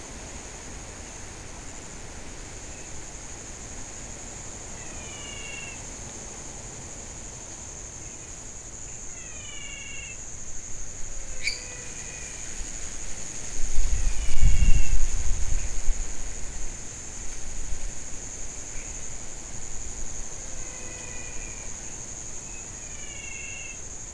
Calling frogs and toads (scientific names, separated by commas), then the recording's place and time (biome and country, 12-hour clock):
Physalaemus albonotatus, Dendropsophus minutus, Leptodactylus podicipinus
Cerrado, Brazil, 7:15pm